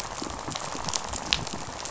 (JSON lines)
{"label": "biophony, rattle", "recorder": "SoundTrap 500"}